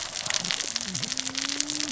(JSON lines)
{"label": "biophony, cascading saw", "recorder": "SoundTrap 600 or HydroMoth"}